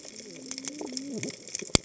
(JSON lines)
{"label": "biophony, cascading saw", "recorder": "HydroMoth"}